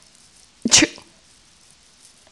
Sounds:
Sneeze